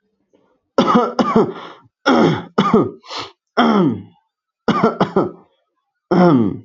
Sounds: Cough